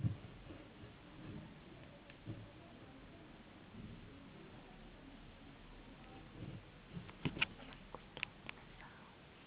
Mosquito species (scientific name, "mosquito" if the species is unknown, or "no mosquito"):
no mosquito